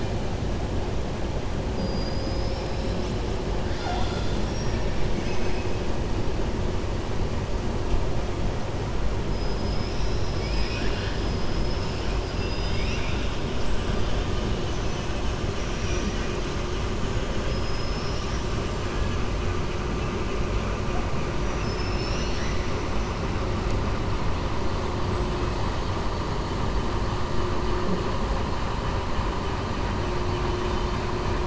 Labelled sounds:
1.7	3.2	killer whale, 4.1 to 7.0 kHz
5.1	5.7	killer whale, 1.5 to 3.3 kHz
9.6	11.2	killer whale, 1.5 to 5.8 kHz
12.2	13.3	killer whale, 1.6 to 5.9 kHz
14.6	15.0	killer whale, 5.1 to 6.7 kHz
15.6	16.3	killer whale, 1.5 to 7.3 kHz
25.0	25.8	killer whale, 7.7 to 8.0 kHz

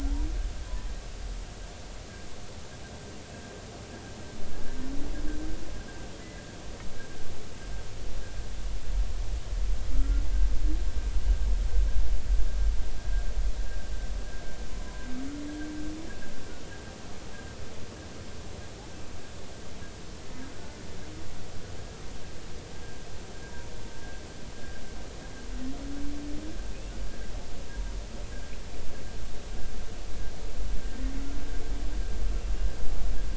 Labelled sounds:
9.9	10.2	humpback whale, 1.3 to 1.4 kHz
13.0	13.2	humpback whale, 1.6 to 1.7 kHz

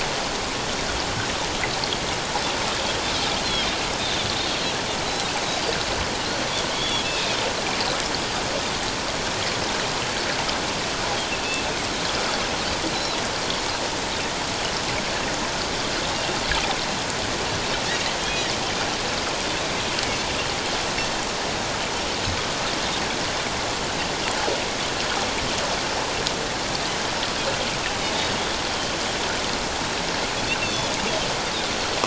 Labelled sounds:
5.5	5.7	Pacific white-sided dolphin, 4.5 to 4.8 kHz
6.7	7.1	Pacific white-sided dolphin, 3.0 to 3.5 kHz
12.9	13.2	Pacific white-sided dolphin, 3.8 to 4.1 kHz
18.2	18.5	Pacific white-sided dolphin, 3.0 to 3.4 kHz
30.6	30.9	Pacific white-sided dolphin, 3.3 to 6.3 kHz

